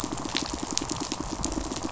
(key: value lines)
label: biophony, pulse
recorder: SoundTrap 500